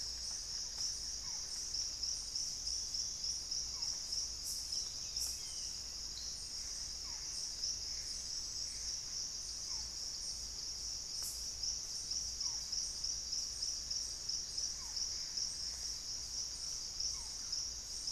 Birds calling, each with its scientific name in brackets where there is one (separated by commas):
Barred Forest-Falcon (Micrastur ruficollis), Gray Antbird (Cercomacra cinerascens), Buff-throated Woodcreeper (Xiphorhynchus guttatus), Thrush-like Wren (Campylorhynchus turdinus)